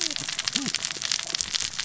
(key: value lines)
label: biophony, cascading saw
recorder: SoundTrap 600 or HydroMoth